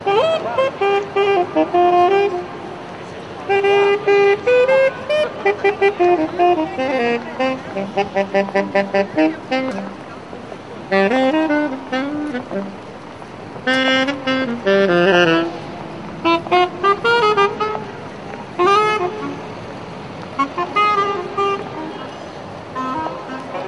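Someone is playing the saxophone. 0.0 - 2.5
Someone is playing the saxophone. 3.5 - 9.8
Someone is playing the saxophone. 10.9 - 12.7
Someone is playing the saxophone. 13.6 - 15.6
Someone is playing the saxophone. 16.2 - 17.9
A short saxophone note. 18.6 - 19.6
A saxophone plays briefly. 20.3 - 21.7
A saxophone is being played in the distance. 22.7 - 23.7

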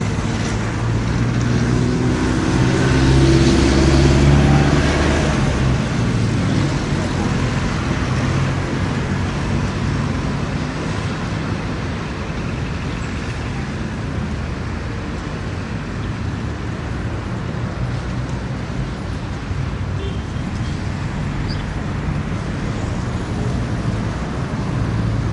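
Traffic noise with vehicles passing by. 0.0 - 25.3
A loud, heavy truck passes by, producing a deep, throaty engine sound. 0.8 - 8.6

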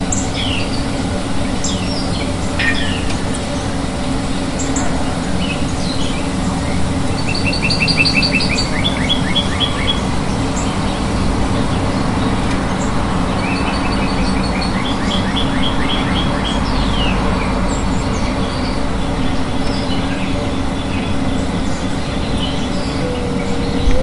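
Several birds chirp and sing with varied tones. 0.0 - 24.0
A bird chirps rapidly in a high-pitched tone. 6.9 - 10.1
A bird chirps rapidly in a high-pitched tone. 13.3 - 16.7
A bird chirps rapidly in a high-pitched tone in the distance. 18.8 - 22.6

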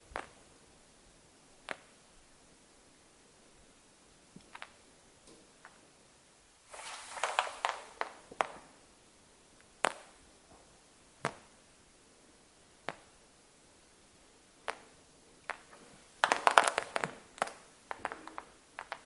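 A water drop drips loudly onto a solid surface. 0.1 - 0.3
A water drop drips loudly onto a solid surface. 1.6 - 1.9
Water drops dripping quietly onto a solid surface repeatedly and irregularly. 4.5 - 5.9
Water drops drip repeatedly onto a solid surface without rhythm. 6.7 - 8.7
A water drop drips loudly onto a solid surface. 9.7 - 10.1
A water drop drips loudly onto a solid surface. 11.1 - 11.4
A water drop drips loudly onto a solid surface. 12.8 - 13.1
A water drop drips loudly onto a solid surface. 14.5 - 15.6
Water drops drip loudly onto a solid surface repeatedly without rhythm. 16.2 - 19.1

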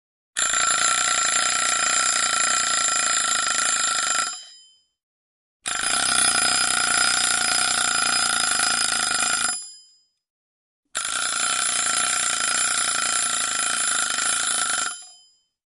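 Rapid metallic strikes of a timer. 0.3 - 5.0
Rapid metallic strikes of a timer. 5.6 - 10.1
Rapid metallic strikes of a timer. 10.9 - 15.4

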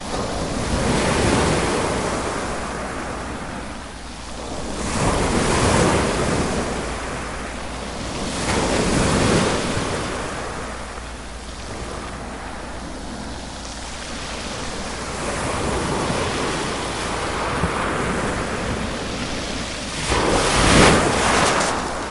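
Waves breaking on a shore. 0.1 - 7.1
Waves breaking on a shore. 8.0 - 10.7
Waves breaking quietly on a shore. 15.1 - 19.4
Waves break loudly on the shore. 19.8 - 22.1

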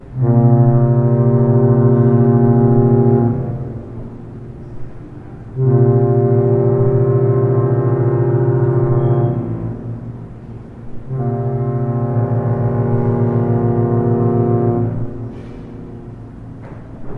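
Multiple horns or trumpets play a single prolonged, slightly echoing note. 0.0 - 3.6
Two horns or trumpets sound in succession with slight echo. 5.6 - 10.0
A horn or trumpet sounds twice in succession with a slight echo. 11.0 - 15.1

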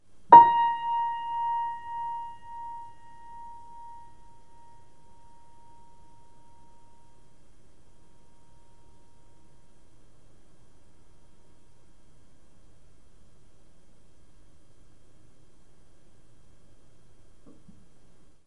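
White noise in the background. 0.0 - 18.5
A single piano note is played and gradually fades out. 0.3 - 9.9

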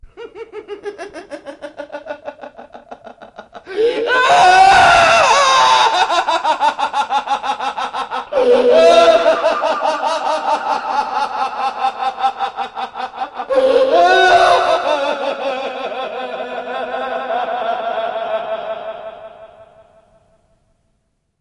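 A man laughs loudly in a rhythmic and intermittent pattern. 0.0 - 3.7
A man yells and laughs crazily in a high-pitched, echoing, and intermittent manner. 3.7 - 16.1
A man’s voice echoes with a mixture of crying and laughing, fading in with a tunnel-like effect. 16.1 - 21.4

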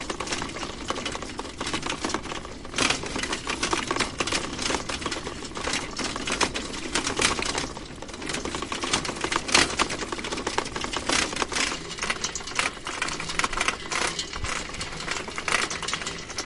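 A bicycle rides over an uneven surface at night, producing metallic rattling and shaking sounds. 0.0 - 16.5

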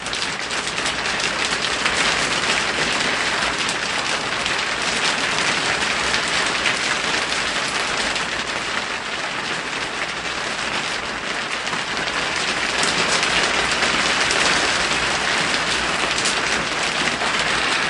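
Heavy rain steadily falls on a wooden roof, creating resonant drips indoors. 0.0 - 17.9

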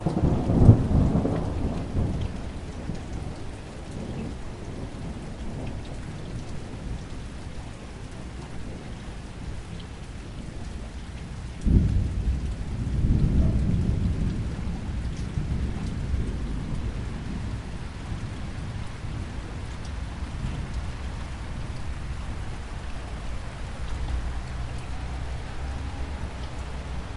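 Thunder rumbles quietly in the distance. 0.0 - 3.0
Soft rain falling quietly. 0.0 - 27.2
Thunder rumbles quietly in the distance. 11.6 - 17.7

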